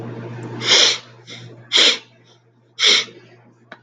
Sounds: Sniff